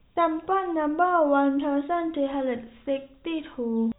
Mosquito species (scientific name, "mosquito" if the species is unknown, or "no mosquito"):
no mosquito